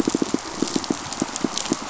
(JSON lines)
{"label": "biophony, pulse", "recorder": "SoundTrap 500"}